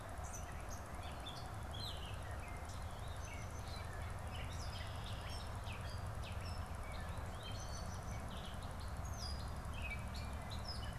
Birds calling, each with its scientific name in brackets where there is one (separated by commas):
Gray Catbird (Dumetella carolinensis)